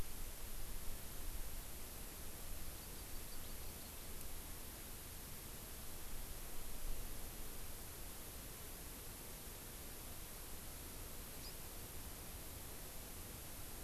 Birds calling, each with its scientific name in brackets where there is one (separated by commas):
House Finch (Haemorhous mexicanus), Hawaii Amakihi (Chlorodrepanis virens)